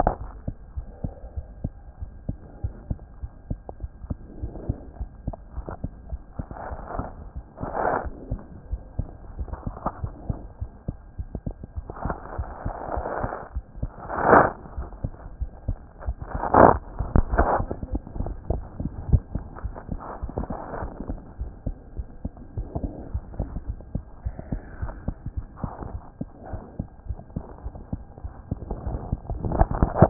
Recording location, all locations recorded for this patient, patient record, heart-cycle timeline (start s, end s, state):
aortic valve (AV)
aortic valve (AV)+pulmonary valve (PV)+tricuspid valve (TV)+mitral valve (MV)
#Age: Child
#Sex: Female
#Height: 88.0 cm
#Weight: 13.1 kg
#Pregnancy status: False
#Murmur: Absent
#Murmur locations: nan
#Most audible location: nan
#Systolic murmur timing: nan
#Systolic murmur shape: nan
#Systolic murmur grading: nan
#Systolic murmur pitch: nan
#Systolic murmur quality: nan
#Diastolic murmur timing: nan
#Diastolic murmur shape: nan
#Diastolic murmur grading: nan
#Diastolic murmur pitch: nan
#Diastolic murmur quality: nan
#Outcome: Abnormal
#Campaign: 2014 screening campaign
0.00	0.64	unannotated
0.64	0.76	diastole
0.76	0.86	S1
0.86	1.02	systole
1.02	1.12	S2
1.12	1.36	diastole
1.36	1.46	S1
1.46	1.62	systole
1.62	1.72	S2
1.72	2.00	diastole
2.00	2.10	S1
2.10	2.28	systole
2.28	2.36	S2
2.36	2.62	diastole
2.62	2.74	S1
2.74	2.88	systole
2.88	2.98	S2
2.98	3.22	diastole
3.22	3.32	S1
3.32	3.50	systole
3.50	3.60	S2
3.60	3.82	diastole
3.82	3.90	S1
3.90	4.08	systole
4.08	4.16	S2
4.16	4.40	diastole
4.40	4.52	S1
4.52	4.68	systole
4.68	4.76	S2
4.76	5.00	diastole
5.00	5.10	S1
5.10	5.26	systole
5.26	5.36	S2
5.36	5.56	diastole
5.56	5.66	S1
5.66	5.82	systole
5.82	5.92	S2
5.92	6.10	diastole
6.10	6.20	S1
6.20	6.38	systole
6.38	6.46	S2
6.46	6.66	diastole
6.66	30.10	unannotated